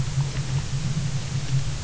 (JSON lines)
{"label": "anthrophony, boat engine", "recorder": "SoundTrap 300"}